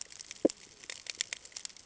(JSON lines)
{"label": "ambient", "recorder": "HydroMoth"}